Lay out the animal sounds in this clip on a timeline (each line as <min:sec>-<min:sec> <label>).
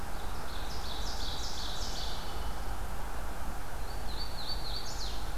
0:00.0-0:02.3 Ovenbird (Seiurus aurocapilla)
0:02.1-0:02.8 Blue Jay (Cyanocitta cristata)
0:03.7-0:05.4 Hooded Warbler (Setophaga citrina)